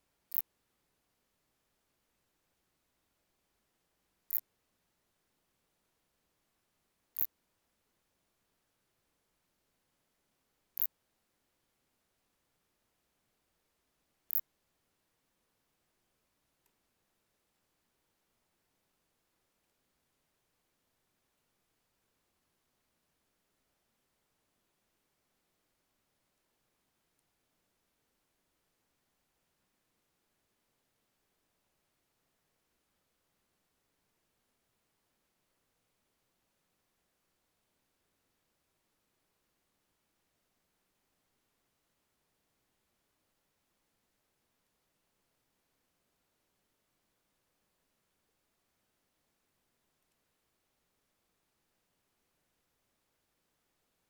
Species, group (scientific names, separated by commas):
Phaneroptera nana, Orthoptera